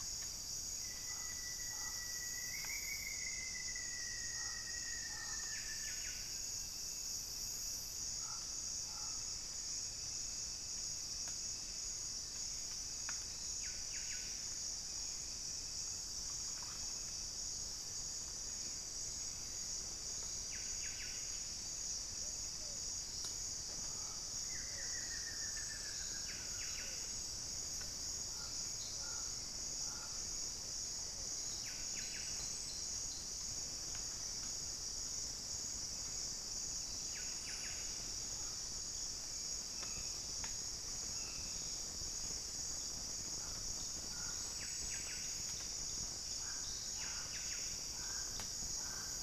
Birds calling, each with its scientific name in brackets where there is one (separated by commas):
Buff-breasted Wren (Cantorchilus leucotis), Pygmy Antwren (Myrmotherula brachyura), Rufous-fronted Antthrush (Formicarius rufifrons), Pale-vented Pigeon (Patagioenas cayennensis)